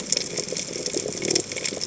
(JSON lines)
{"label": "biophony", "recorder": "HydroMoth"}